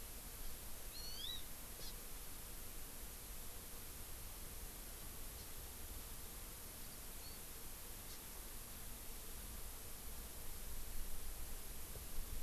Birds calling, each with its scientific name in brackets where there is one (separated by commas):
Hawaii Amakihi (Chlorodrepanis virens)